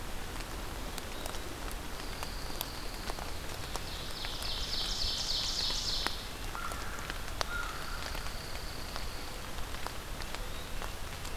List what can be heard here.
Pine Warbler, Ovenbird, American Crow